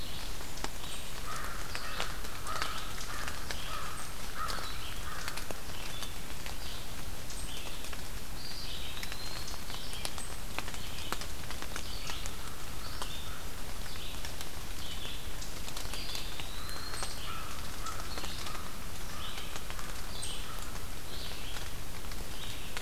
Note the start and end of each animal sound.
[0.00, 22.81] Red-eyed Vireo (Vireo olivaceus)
[1.12, 5.48] American Crow (Corvus brachyrhynchos)
[8.32, 9.65] Eastern Wood-Pewee (Contopus virens)
[11.88, 13.45] American Crow (Corvus brachyrhynchos)
[15.81, 17.26] Eastern Wood-Pewee (Contopus virens)
[16.41, 20.89] American Crow (Corvus brachyrhynchos)

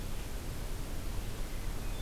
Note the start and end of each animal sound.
[1.41, 2.02] Hermit Thrush (Catharus guttatus)

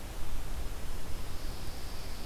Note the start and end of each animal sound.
[1.23, 2.25] Pine Warbler (Setophaga pinus)

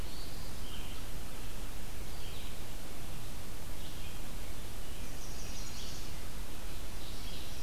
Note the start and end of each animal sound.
[0.00, 0.65] Black-throated Blue Warbler (Setophaga caerulescens)
[0.59, 7.63] Red-eyed Vireo (Vireo olivaceus)
[5.02, 6.10] Chestnut-sided Warbler (Setophaga pensylvanica)
[6.79, 7.63] Ovenbird (Seiurus aurocapilla)

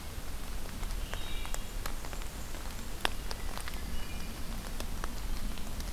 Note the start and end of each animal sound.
[0.87, 1.71] Wood Thrush (Hylocichla mustelina)
[1.42, 2.91] Blackburnian Warbler (Setophaga fusca)
[3.70, 4.48] Wood Thrush (Hylocichla mustelina)

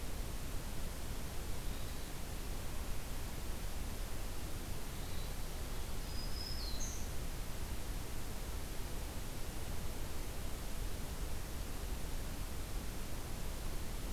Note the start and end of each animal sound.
[1.67, 2.17] Hermit Thrush (Catharus guttatus)
[4.87, 5.42] Hermit Thrush (Catharus guttatus)
[6.02, 7.14] Black-throated Green Warbler (Setophaga virens)

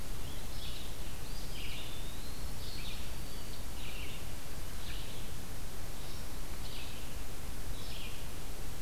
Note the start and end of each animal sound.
[0.00, 8.82] Red-eyed Vireo (Vireo olivaceus)
[1.06, 2.63] Eastern Wood-Pewee (Contopus virens)
[2.87, 3.76] Black-throated Green Warbler (Setophaga virens)

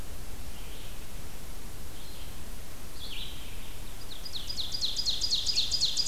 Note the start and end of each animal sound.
[0.00, 2.50] Red-eyed Vireo (Vireo olivaceus)
[2.82, 6.08] Red-eyed Vireo (Vireo olivaceus)
[3.99, 6.08] Ovenbird (Seiurus aurocapilla)

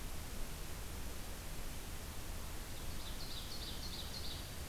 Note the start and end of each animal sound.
[2.91, 4.46] Ovenbird (Seiurus aurocapilla)

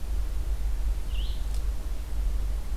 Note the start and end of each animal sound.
[0.00, 2.77] Red-eyed Vireo (Vireo olivaceus)

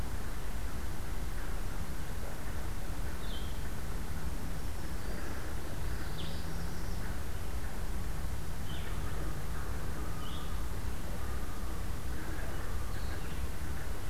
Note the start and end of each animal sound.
[3.08, 13.41] Blue-headed Vireo (Vireo solitarius)
[4.19, 5.50] Black-throated Green Warbler (Setophaga virens)
[5.68, 7.08] Northern Parula (Setophaga americana)

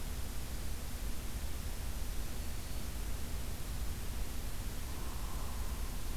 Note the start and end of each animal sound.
[1.94, 3.01] Black-throated Green Warbler (Setophaga virens)
[4.82, 5.93] Hairy Woodpecker (Dryobates villosus)

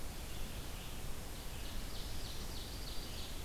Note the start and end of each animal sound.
[0.00, 3.45] Red-eyed Vireo (Vireo olivaceus)
[1.21, 3.45] Ovenbird (Seiurus aurocapilla)

